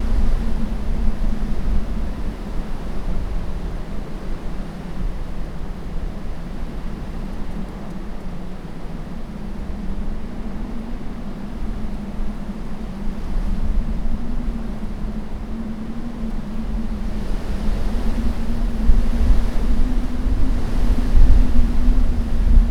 What is causing the howling sound?
wind